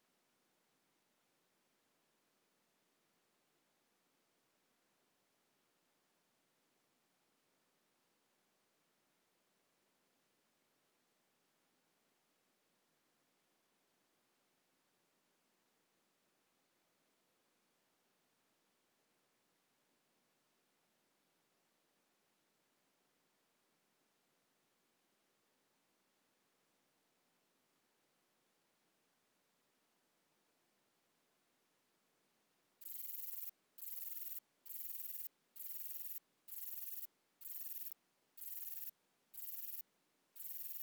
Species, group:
Rhacocleis lithoscirtetes
Orthoptera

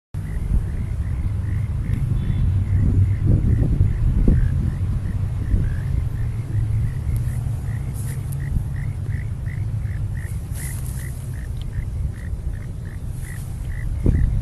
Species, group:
Neocurtilla hexadactyla
Orthoptera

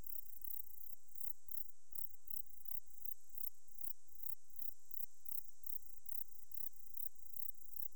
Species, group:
Platycleis sabulosa
Orthoptera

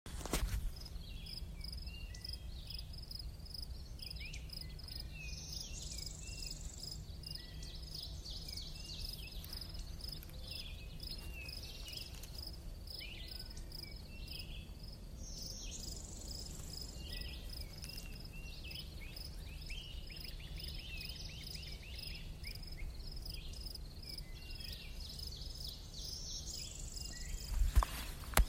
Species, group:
Gryllus veletis
Orthoptera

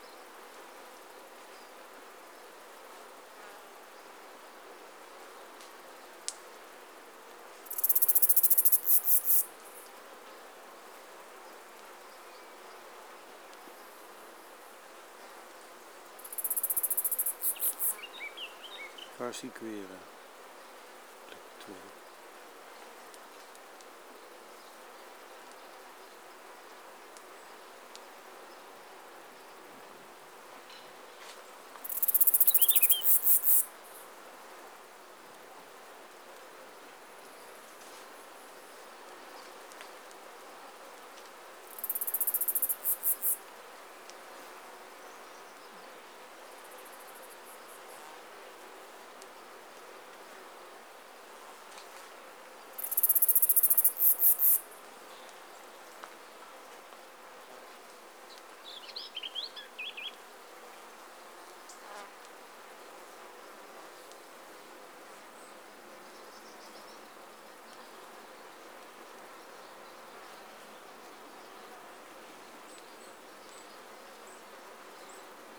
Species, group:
Neocallicrania selligera
Orthoptera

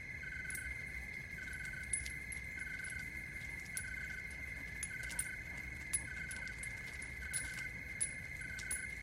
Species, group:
Oecanthus rileyi
Orthoptera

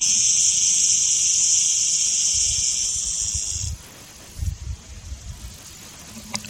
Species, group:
Cicada barbara
Cicadidae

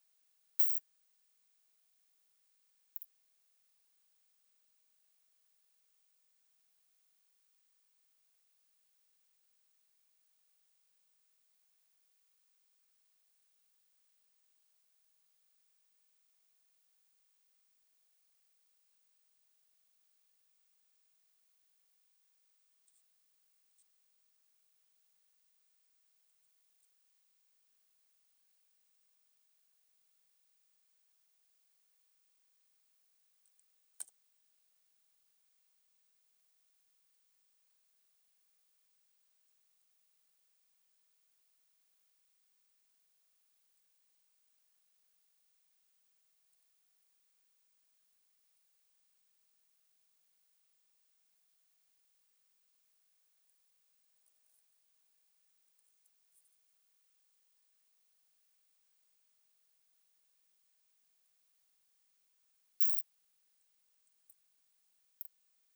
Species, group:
Isophya rectipennis
Orthoptera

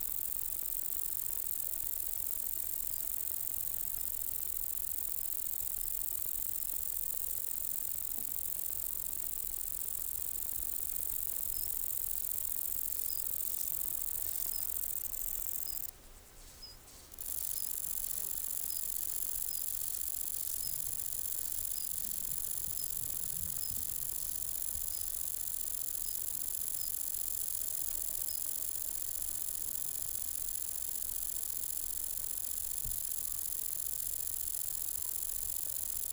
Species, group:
Conocephalus fuscus
Orthoptera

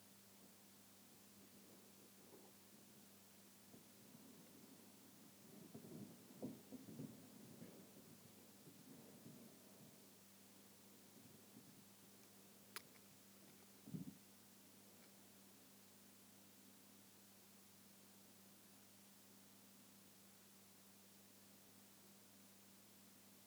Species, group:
Leptophyes punctatissima
Orthoptera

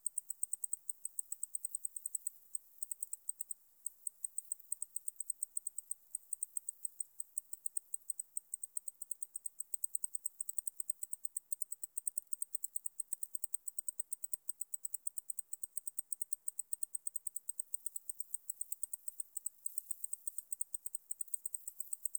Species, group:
Decticus albifrons
Orthoptera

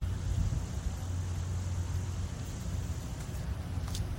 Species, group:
Neotibicen lyricen
Cicadidae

